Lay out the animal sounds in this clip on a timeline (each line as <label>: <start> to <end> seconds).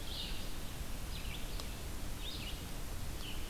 Red-eyed Vireo (Vireo olivaceus): 0.0 to 3.5 seconds
Scarlet Tanager (Piranga olivacea): 2.9 to 3.5 seconds